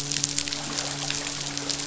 {"label": "biophony, midshipman", "recorder": "SoundTrap 500"}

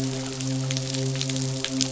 {"label": "biophony, midshipman", "recorder": "SoundTrap 500"}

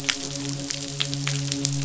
{"label": "biophony, midshipman", "recorder": "SoundTrap 500"}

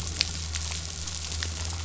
{"label": "anthrophony, boat engine", "recorder": "SoundTrap 500"}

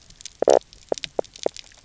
{"label": "biophony, knock croak", "recorder": "SoundTrap 300"}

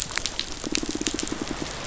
{"label": "biophony, pulse", "recorder": "SoundTrap 500"}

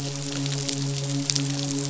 {"label": "biophony, midshipman", "recorder": "SoundTrap 500"}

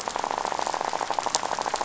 {"label": "biophony, rattle", "recorder": "SoundTrap 500"}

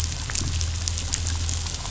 {"label": "anthrophony, boat engine", "recorder": "SoundTrap 500"}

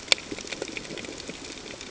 {"label": "ambient", "recorder": "HydroMoth"}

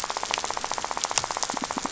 {"label": "biophony, rattle", "recorder": "SoundTrap 500"}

